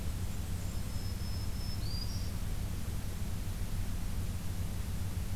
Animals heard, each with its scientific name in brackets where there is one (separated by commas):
Black-throated Green Warbler (Setophaga virens), Blackburnian Warbler (Setophaga fusca)